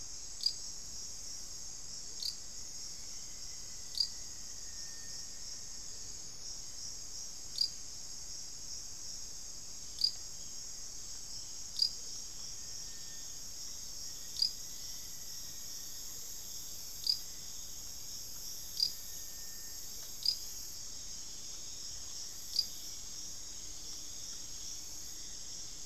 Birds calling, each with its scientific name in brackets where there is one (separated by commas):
Thrush-like Wren (Campylorhynchus turdinus), Hauxwell's Thrush (Turdus hauxwelli), Black-faced Antthrush (Formicarius analis), Amazonian Motmot (Momotus momota), Rufous-fronted Antthrush (Formicarius rufifrons)